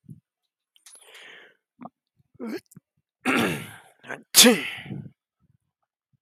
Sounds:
Sneeze